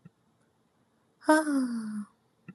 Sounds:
Sigh